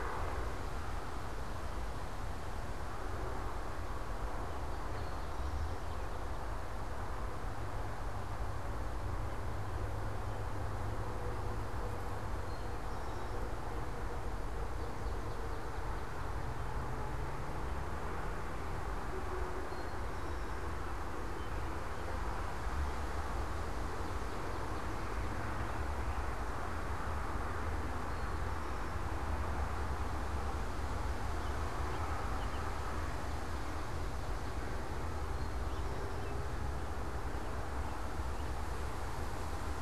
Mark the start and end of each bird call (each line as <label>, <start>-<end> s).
Eastern Towhee (Pipilo erythrophthalmus), 4.7-5.9 s
Eastern Towhee (Pipilo erythrophthalmus), 12.3-13.5 s
Eastern Towhee (Pipilo erythrophthalmus), 19.7-20.6 s
Swamp Sparrow (Melospiza georgiana), 23.5-26.1 s
Eastern Towhee (Pipilo erythrophthalmus), 28.1-29.1 s
American Robin (Turdus migratorius), 31.2-32.9 s